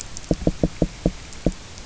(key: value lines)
label: biophony, knock
recorder: SoundTrap 300